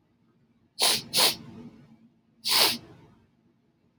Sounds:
Sniff